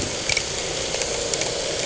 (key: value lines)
label: anthrophony, boat engine
recorder: HydroMoth